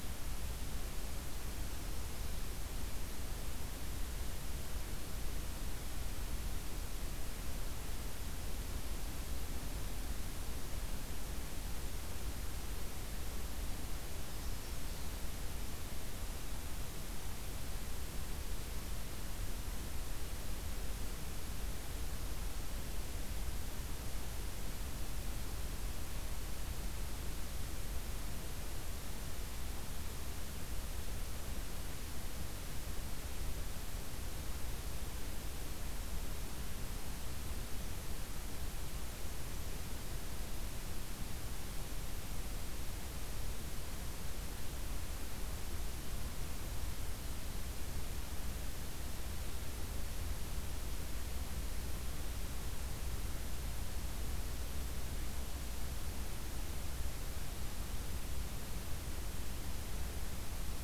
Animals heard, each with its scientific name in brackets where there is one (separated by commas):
Magnolia Warbler (Setophaga magnolia)